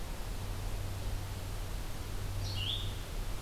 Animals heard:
Red-eyed Vireo (Vireo olivaceus)

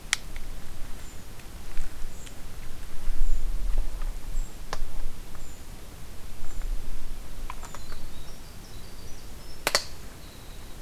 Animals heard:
Winter Wren (Troglodytes hiemalis), Brown Creeper (Certhia americana)

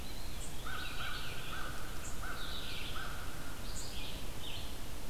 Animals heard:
unknown mammal, American Crow (Corvus brachyrhynchos), Eastern Wood-Pewee (Contopus virens), Red-eyed Vireo (Vireo olivaceus)

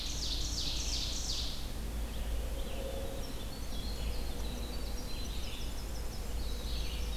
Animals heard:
Ovenbird (Seiurus aurocapilla), Red-eyed Vireo (Vireo olivaceus), Winter Wren (Troglodytes hiemalis)

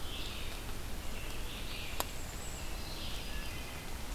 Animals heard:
Wood Thrush (Hylocichla mustelina), Red-eyed Vireo (Vireo olivaceus), American Robin (Turdus migratorius), unidentified call, Yellow-rumped Warbler (Setophaga coronata)

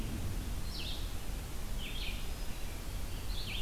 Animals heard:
Red-eyed Vireo (Vireo olivaceus)

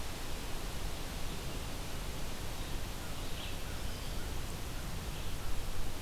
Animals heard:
American Crow (Corvus brachyrhynchos)

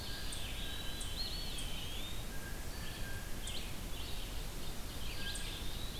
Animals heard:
Red-eyed Vireo (Vireo olivaceus), Ovenbird (Seiurus aurocapilla), Eastern Wood-Pewee (Contopus virens), Blue Jay (Cyanocitta cristata)

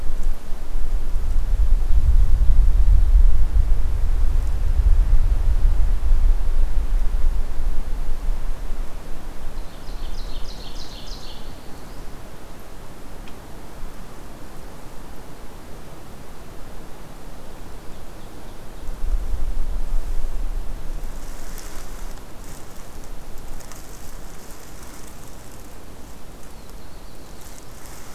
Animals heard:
Ovenbird (Seiurus aurocapilla), Black-throated Blue Warbler (Setophaga caerulescens)

